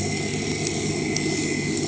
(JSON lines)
{"label": "anthrophony, boat engine", "recorder": "HydroMoth"}